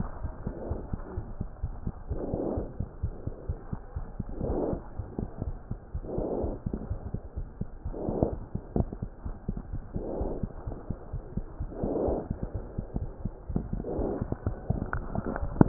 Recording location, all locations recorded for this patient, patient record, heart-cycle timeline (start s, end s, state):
aortic valve (AV)
aortic valve (AV)+pulmonary valve (PV)+tricuspid valve (TV)+mitral valve (MV)
#Age: Child
#Sex: Male
#Height: 82.0 cm
#Weight: 11.1 kg
#Pregnancy status: False
#Murmur: Absent
#Murmur locations: nan
#Most audible location: nan
#Systolic murmur timing: nan
#Systolic murmur shape: nan
#Systolic murmur grading: nan
#Systolic murmur pitch: nan
#Systolic murmur quality: nan
#Diastolic murmur timing: nan
#Diastolic murmur shape: nan
#Diastolic murmur grading: nan
#Diastolic murmur pitch: nan
#Diastolic murmur quality: nan
#Outcome: Abnormal
#Campaign: 2015 screening campaign
0.00	4.78	unannotated
4.78	4.97	diastole
4.97	5.05	S1
5.05	5.20	systole
5.20	5.28	S2
5.28	5.45	diastole
5.45	5.54	S1
5.54	5.69	systole
5.69	5.76	S2
5.76	5.93	diastole
5.93	6.03	S1
6.03	6.16	systole
6.16	6.24	S2
6.24	6.40	diastole
6.40	6.49	S1
6.49	6.65	systole
6.65	6.71	S2
6.71	6.90	diastole
6.90	6.97	S1
6.97	7.12	systole
7.12	7.20	S2
7.20	7.36	diastole
7.36	7.48	S1
7.48	7.60	systole
7.60	7.68	S2
7.68	7.86	diastole
7.86	7.93	S1
7.93	8.08	systole
8.08	8.14	S2
8.14	8.30	diastole
8.30	8.36	S1
8.36	8.53	systole
8.53	8.59	S2
8.59	8.76	diastole
8.76	8.88	S1
8.88	9.00	systole
9.00	9.10	S2
9.10	9.26	diastole
9.26	9.36	S1
9.36	9.48	systole
9.48	9.60	S2
9.60	9.74	diastole
9.74	9.82	S1
9.82	9.94	systole
9.94	10.06	S2
10.06	10.22	diastole
10.22	10.32	S1
10.32	10.44	systole
10.44	10.50	S2
10.50	10.68	diastole
10.68	10.76	S1
10.76	10.90	systole
10.90	10.96	S2
10.96	11.14	diastole
11.14	11.24	S1
11.24	11.36	systole
11.36	11.44	S2
11.44	11.60	diastole
11.60	11.70	S1
11.70	11.84	systole
11.84	11.98	S2
11.98	12.04	diastole
12.04	12.08	S2
12.08	12.12	S1
12.12	15.68	unannotated